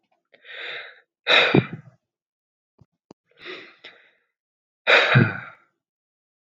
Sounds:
Sigh